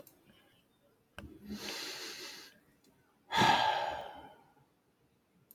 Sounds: Sigh